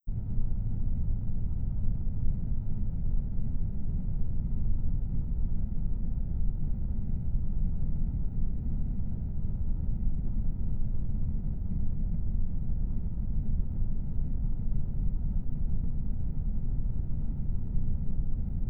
Are there several farm animals?
no